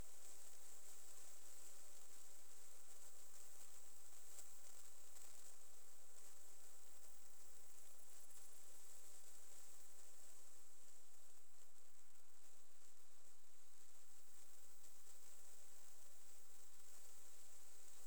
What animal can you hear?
Tettigonia viridissima, an orthopteran